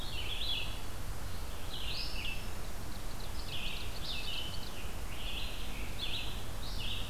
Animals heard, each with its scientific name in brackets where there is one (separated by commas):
Scarlet Tanager (Piranga olivacea), Red-eyed Vireo (Vireo olivaceus), Ovenbird (Seiurus aurocapilla)